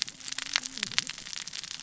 {"label": "biophony, cascading saw", "recorder": "SoundTrap 600 or HydroMoth"}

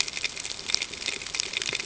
{"label": "ambient", "recorder": "HydroMoth"}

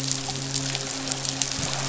{"label": "biophony, midshipman", "recorder": "SoundTrap 500"}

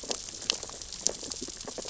{"label": "biophony, sea urchins (Echinidae)", "recorder": "SoundTrap 600 or HydroMoth"}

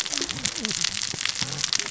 {"label": "biophony, cascading saw", "recorder": "SoundTrap 600 or HydroMoth"}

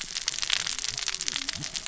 {"label": "biophony, cascading saw", "recorder": "SoundTrap 600 or HydroMoth"}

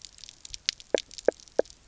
{"label": "biophony, knock croak", "recorder": "SoundTrap 300"}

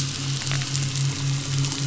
{"label": "anthrophony, boat engine", "recorder": "SoundTrap 500"}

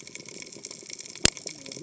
{"label": "biophony, cascading saw", "recorder": "HydroMoth"}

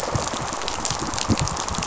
{"label": "biophony, rattle response", "recorder": "SoundTrap 500"}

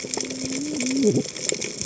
{"label": "biophony, cascading saw", "recorder": "HydroMoth"}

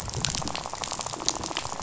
{"label": "biophony, rattle", "recorder": "SoundTrap 500"}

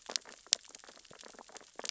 {"label": "biophony, sea urchins (Echinidae)", "recorder": "SoundTrap 600 or HydroMoth"}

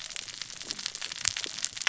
{"label": "biophony, cascading saw", "recorder": "SoundTrap 600 or HydroMoth"}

